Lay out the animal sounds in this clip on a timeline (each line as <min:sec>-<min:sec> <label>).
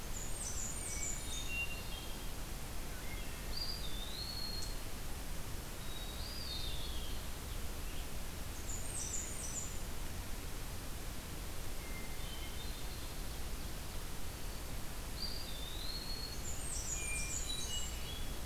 0:00.0-0:01.6 Blackburnian Warbler (Setophaga fusca)
0:00.7-0:02.3 Hermit Thrush (Catharus guttatus)
0:02.9-0:03.5 Wood Thrush (Hylocichla mustelina)
0:03.5-0:04.7 Eastern Wood-Pewee (Contopus virens)
0:05.7-0:07.3 Hermit Thrush (Catharus guttatus)
0:06.1-0:07.2 Eastern Wood-Pewee (Contopus virens)
0:06.4-0:08.1 Scarlet Tanager (Piranga olivacea)
0:08.4-0:09.8 Blackburnian Warbler (Setophaga fusca)
0:11.9-0:13.3 Hermit Thrush (Catharus guttatus)
0:15.0-0:16.5 Eastern Wood-Pewee (Contopus virens)
0:16.3-0:18.1 Blackburnian Warbler (Setophaga fusca)
0:16.8-0:18.3 Hermit Thrush (Catharus guttatus)